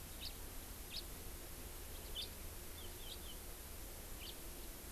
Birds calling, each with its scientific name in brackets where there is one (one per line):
House Finch (Haemorhous mexicanus)